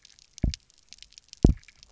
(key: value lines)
label: biophony, double pulse
recorder: SoundTrap 300